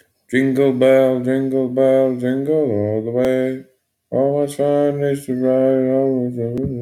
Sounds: Sigh